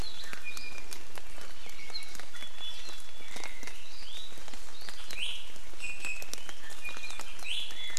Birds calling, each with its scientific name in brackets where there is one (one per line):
Iiwi (Drepanis coccinea)